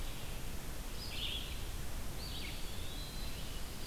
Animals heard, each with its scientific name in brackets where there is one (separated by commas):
Red-eyed Vireo (Vireo olivaceus), Eastern Wood-Pewee (Contopus virens)